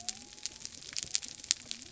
{"label": "biophony", "recorder": "SoundTrap 300"}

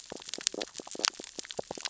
{"label": "biophony, stridulation", "recorder": "SoundTrap 600 or HydroMoth"}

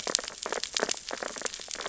{"label": "biophony, sea urchins (Echinidae)", "recorder": "SoundTrap 600 or HydroMoth"}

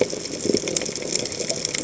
{"label": "biophony", "recorder": "HydroMoth"}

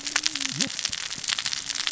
{"label": "biophony, cascading saw", "recorder": "SoundTrap 600 or HydroMoth"}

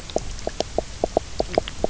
{"label": "biophony, knock croak", "recorder": "SoundTrap 300"}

